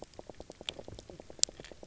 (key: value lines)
label: biophony, knock croak
recorder: SoundTrap 300